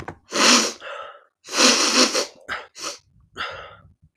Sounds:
Sniff